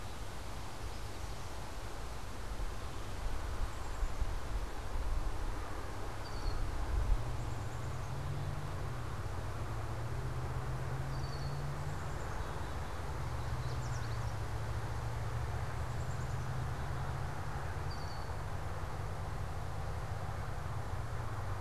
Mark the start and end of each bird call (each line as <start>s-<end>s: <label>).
6.1s-6.8s: Red-winged Blackbird (Agelaius phoeniceus)
7.2s-17.2s: Black-capped Chickadee (Poecile atricapillus)
10.9s-11.9s: Red-winged Blackbird (Agelaius phoeniceus)
13.3s-14.4s: Yellow Warbler (Setophaga petechia)
17.5s-18.5s: Red-winged Blackbird (Agelaius phoeniceus)